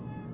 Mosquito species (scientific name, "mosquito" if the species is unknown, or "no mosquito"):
Aedes albopictus